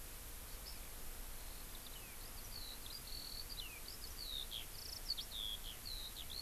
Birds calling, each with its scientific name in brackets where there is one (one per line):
Eurasian Skylark (Alauda arvensis)